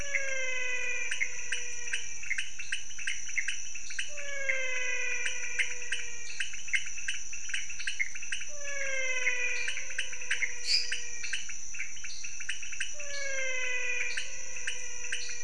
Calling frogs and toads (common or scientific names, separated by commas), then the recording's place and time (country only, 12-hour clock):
menwig frog, pointedbelly frog, Pithecopus azureus, dwarf tree frog, lesser tree frog
Brazil, 4:00am